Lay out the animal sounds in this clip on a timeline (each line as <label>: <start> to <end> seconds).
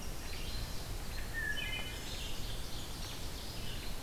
Chestnut-sided Warbler (Setophaga pensylvanica): 0.0 to 0.9 seconds
Wood Thrush (Hylocichla mustelina): 1.2 to 2.4 seconds
Ovenbird (Seiurus aurocapilla): 1.9 to 4.0 seconds
Chestnut-sided Warbler (Setophaga pensylvanica): 2.3 to 3.4 seconds